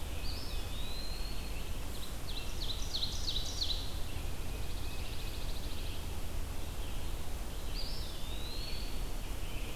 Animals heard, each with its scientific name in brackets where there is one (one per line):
Red-eyed Vireo (Vireo olivaceus)
Ovenbird (Seiurus aurocapilla)
Eastern Wood-Pewee (Contopus virens)
Pine Warbler (Setophaga pinus)